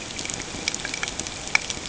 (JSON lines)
{"label": "ambient", "recorder": "HydroMoth"}